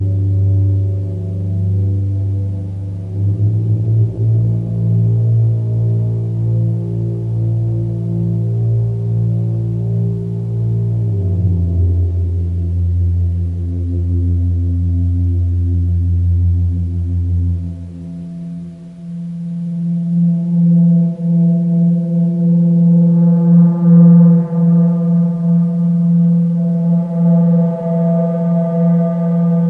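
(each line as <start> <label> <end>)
0.0 A loud continuous monotonous sound. 29.7
0.0 Quiet, consistent radio static. 29.7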